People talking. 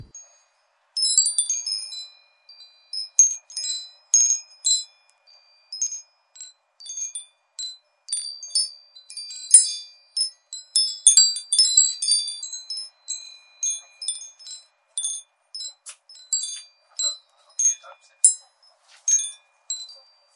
16.6s 19.1s

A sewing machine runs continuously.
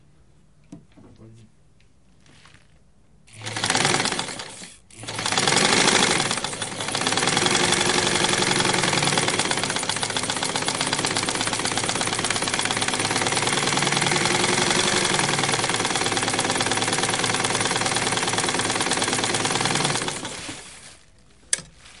3.4s 20.9s

